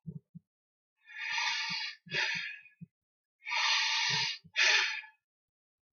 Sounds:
Sigh